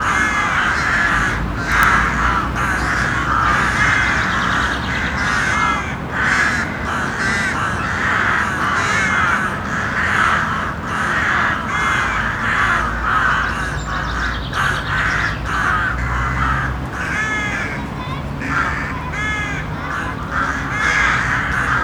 What is the four letter name of these common black birds?
crow